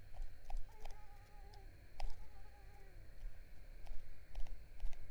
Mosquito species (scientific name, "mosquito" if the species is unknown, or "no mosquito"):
Mansonia uniformis